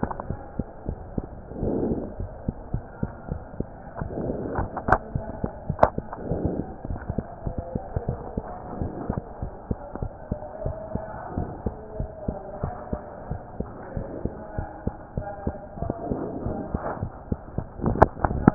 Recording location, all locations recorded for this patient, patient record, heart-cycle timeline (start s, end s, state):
mitral valve (MV)
aortic valve (AV)+pulmonary valve (PV)+tricuspid valve (TV)+mitral valve (MV)
#Age: Child
#Sex: Female
#Height: 110.0 cm
#Weight: 18.9 kg
#Pregnancy status: False
#Murmur: Absent
#Murmur locations: nan
#Most audible location: nan
#Systolic murmur timing: nan
#Systolic murmur shape: nan
#Systolic murmur grading: nan
#Systolic murmur pitch: nan
#Systolic murmur quality: nan
#Diastolic murmur timing: nan
#Diastolic murmur shape: nan
#Diastolic murmur grading: nan
#Diastolic murmur pitch: nan
#Diastolic murmur quality: nan
#Outcome: Abnormal
#Campaign: 2015 screening campaign
0.00	9.40	unannotated
9.40	9.54	S1
9.54	9.66	systole
9.66	9.78	S2
9.78	10.00	diastole
10.00	10.12	S1
10.12	10.30	systole
10.30	10.42	S2
10.42	10.64	diastole
10.64	10.78	S1
10.78	10.92	systole
10.92	11.04	S2
11.04	11.32	diastole
11.32	11.50	S1
11.50	11.64	systole
11.64	11.78	S2
11.78	11.98	diastole
11.98	12.10	S1
12.10	12.24	systole
12.24	12.38	S2
12.38	12.62	diastole
12.62	12.74	S1
12.74	12.88	systole
12.88	13.02	S2
13.02	13.28	diastole
13.28	13.42	S1
13.42	13.56	systole
13.56	13.68	S2
13.68	13.92	diastole
13.92	14.04	S1
14.04	14.20	systole
14.20	14.34	S2
14.34	14.54	diastole
14.54	14.66	S1
14.66	14.82	systole
14.82	14.96	S2
14.96	15.16	diastole
15.16	15.26	S1
15.26	15.44	systole
15.44	15.56	S2
15.56	15.78	diastole
15.78	15.94	S1
15.94	16.08	systole
16.08	16.17	S2
16.17	16.43	diastole
16.43	16.54	S1
16.54	16.72	systole
16.72	16.80	S2
16.80	17.01	diastole
17.01	17.10	S1
17.10	17.28	systole
17.28	17.37	S2
17.37	17.56	diastole
17.56	17.64	S1
17.64	18.54	unannotated